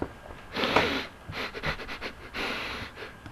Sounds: Sniff